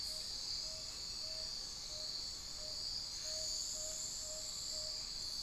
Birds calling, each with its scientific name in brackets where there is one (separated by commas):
Tawny-bellied Screech-Owl (Megascops watsonii), Amazonian Pygmy-Owl (Glaucidium hardyi)